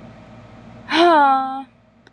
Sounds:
Sigh